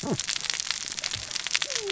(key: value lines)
label: biophony, cascading saw
recorder: SoundTrap 600 or HydroMoth